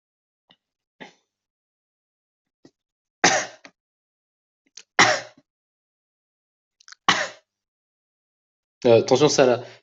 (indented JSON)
{
  "expert_labels": [
    {
      "quality": "good",
      "cough_type": "dry",
      "dyspnea": false,
      "wheezing": false,
      "stridor": false,
      "choking": false,
      "congestion": false,
      "nothing": true,
      "diagnosis": "upper respiratory tract infection",
      "severity": "mild"
    }
  ],
  "age": 20,
  "gender": "male",
  "respiratory_condition": false,
  "fever_muscle_pain": false,
  "status": "symptomatic"
}